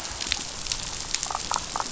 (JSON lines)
{"label": "biophony, damselfish", "recorder": "SoundTrap 500"}